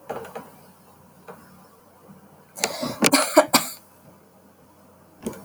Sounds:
Cough